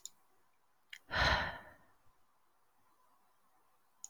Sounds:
Sigh